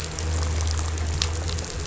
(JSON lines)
{"label": "anthrophony, boat engine", "recorder": "SoundTrap 500"}